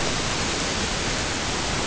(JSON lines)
{"label": "ambient", "recorder": "HydroMoth"}